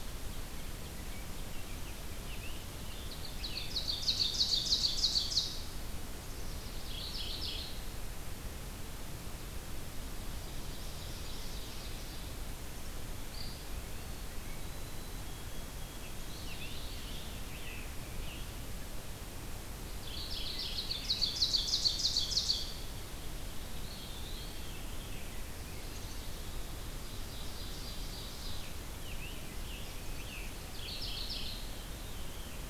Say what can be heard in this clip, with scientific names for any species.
Turdus migratorius, Seiurus aurocapilla, Geothlypis philadelphia, Contopus virens, Zonotrichia albicollis, Piranga olivacea, Catharus fuscescens